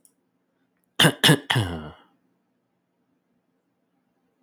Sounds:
Cough